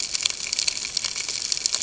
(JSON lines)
{"label": "ambient", "recorder": "HydroMoth"}